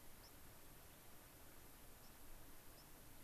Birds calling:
White-crowned Sparrow (Zonotrichia leucophrys)

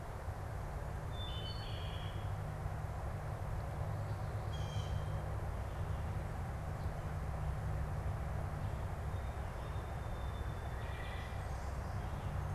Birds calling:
Blue Jay (Cyanocitta cristata)
Song Sparrow (Melospiza melodia)
Wood Thrush (Hylocichla mustelina)

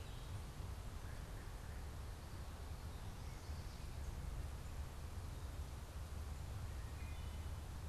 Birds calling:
Wood Thrush (Hylocichla mustelina)

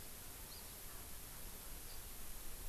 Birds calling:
Hawaii Amakihi (Chlorodrepanis virens)

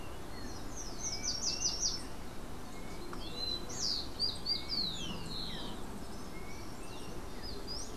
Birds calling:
Yellow-faced Grassquit (Tiaris olivaceus)
Slate-throated Redstart (Myioborus miniatus)
Rufous-collared Sparrow (Zonotrichia capensis)

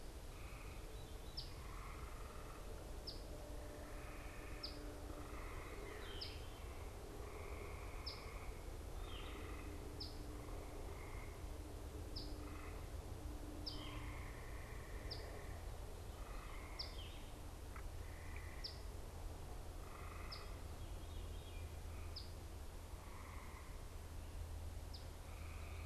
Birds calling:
Eastern Phoebe (Sayornis phoebe)
Yellow-throated Vireo (Vireo flavifrons)

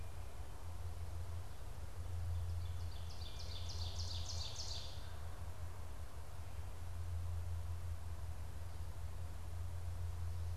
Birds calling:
Ovenbird (Seiurus aurocapilla)

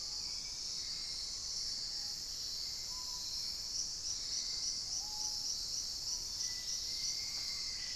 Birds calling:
Dusky-capped Greenlet (Pachysylvia hypoxantha)
Black-faced Antthrush (Formicarius analis)
Screaming Piha (Lipaugus vociferans)
unidentified bird

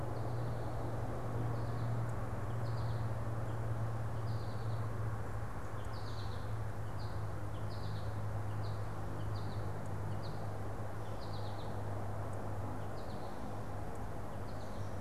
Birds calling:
American Goldfinch (Spinus tristis)

